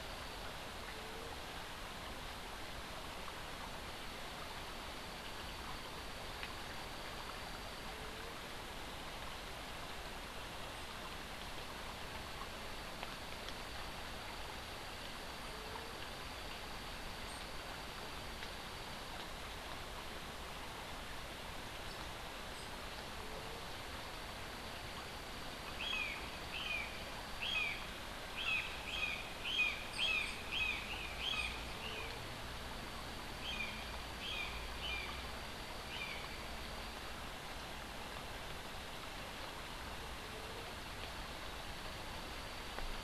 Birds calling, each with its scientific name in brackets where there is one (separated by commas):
Brown Jay (Psilorhinus morio), Tennessee Warbler (Leiothlypis peregrina)